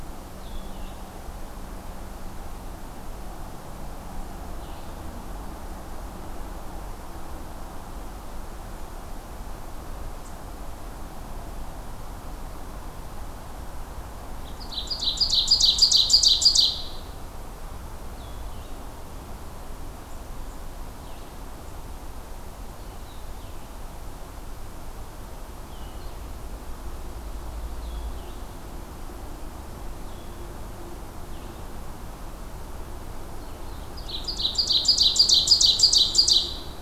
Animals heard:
Ovenbird (Seiurus aurocapilla)
Blue-headed Vireo (Vireo solitarius)

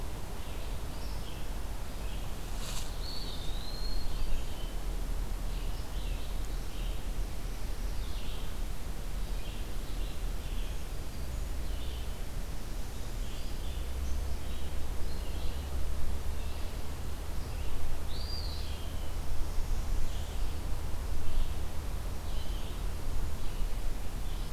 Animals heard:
Eastern Wood-Pewee (Contopus virens)
Northern Parula (Setophaga americana)
Red-eyed Vireo (Vireo olivaceus)

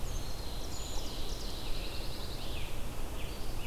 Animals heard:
Scarlet Tanager (Piranga olivacea)
Brown Creeper (Certhia americana)
Ovenbird (Seiurus aurocapilla)
Pine Warbler (Setophaga pinus)

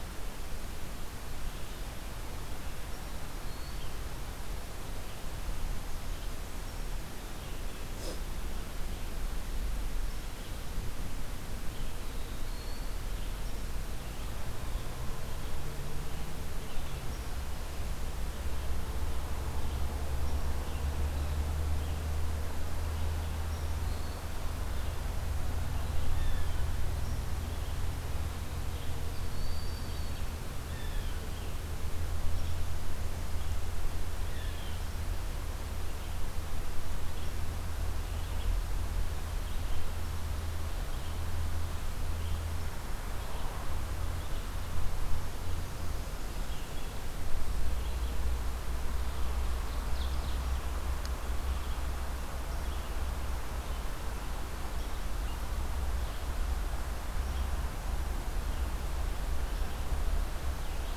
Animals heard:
Broad-winged Hawk (Buteo platypterus)
Red-eyed Vireo (Vireo olivaceus)
Blue Jay (Cyanocitta cristata)
Eastern Wood-Pewee (Contopus virens)
Ovenbird (Seiurus aurocapilla)

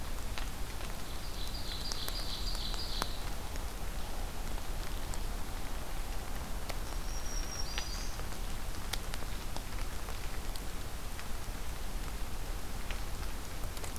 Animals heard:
Ovenbird (Seiurus aurocapilla)
Black-throated Green Warbler (Setophaga virens)

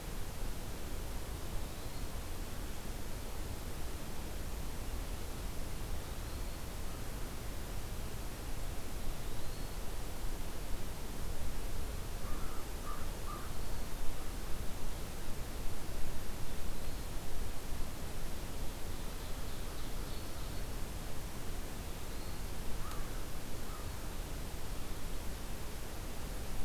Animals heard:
Eastern Wood-Pewee (Contopus virens)
American Crow (Corvus brachyrhynchos)
Ovenbird (Seiurus aurocapilla)

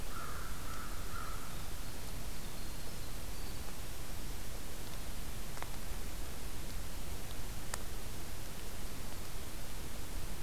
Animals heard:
Winter Wren (Troglodytes hiemalis)
American Crow (Corvus brachyrhynchos)

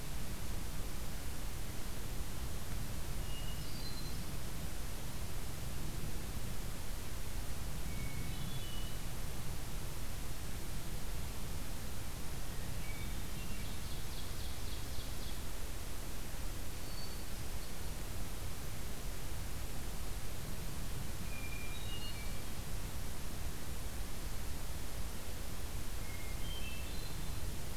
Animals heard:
Ovenbird (Seiurus aurocapilla)
Hermit Thrush (Catharus guttatus)

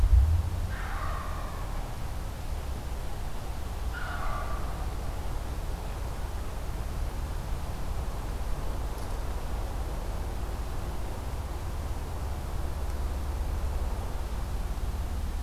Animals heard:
Wild Turkey (Meleagris gallopavo)

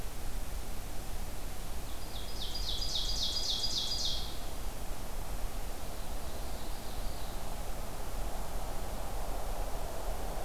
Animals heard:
Ovenbird (Seiurus aurocapilla)

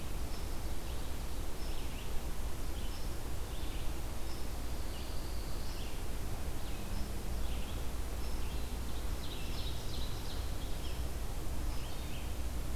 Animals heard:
Red-eyed Vireo (Vireo olivaceus)
unknown mammal
Ovenbird (Seiurus aurocapilla)
Pine Warbler (Setophaga pinus)

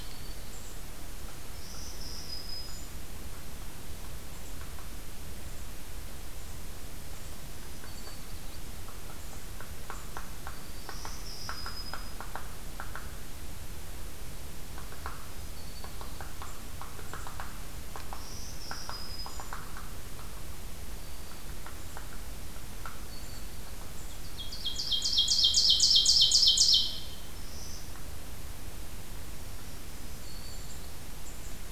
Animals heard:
Ovenbird (Seiurus aurocapilla)
Golden-crowned Kinglet (Regulus satrapa)
Black-throated Green Warbler (Setophaga virens)
Hairy Woodpecker (Dryobates villosus)

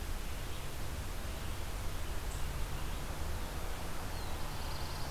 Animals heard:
Eastern Chipmunk (Tamias striatus)
Black-throated Blue Warbler (Setophaga caerulescens)

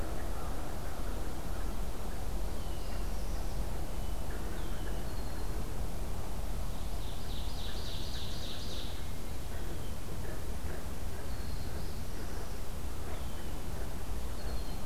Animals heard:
Northern Parula (Setophaga americana)
Ovenbird (Seiurus aurocapilla)
Red-winged Blackbird (Agelaius phoeniceus)

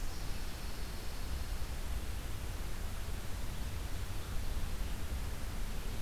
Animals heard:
Pine Warbler (Setophaga pinus)

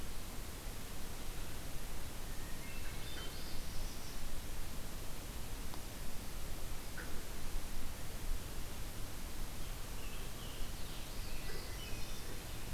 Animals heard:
Hermit Thrush (Catharus guttatus)
Scarlet Tanager (Piranga olivacea)
Northern Parula (Setophaga americana)

